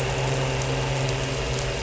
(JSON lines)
{"label": "anthrophony, boat engine", "recorder": "SoundTrap 300"}